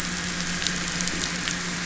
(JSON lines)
{"label": "anthrophony, boat engine", "recorder": "SoundTrap 500"}